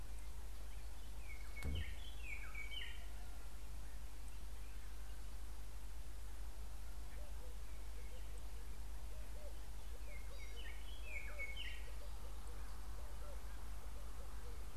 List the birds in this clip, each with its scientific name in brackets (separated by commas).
White-browed Robin-Chat (Cossypha heuglini)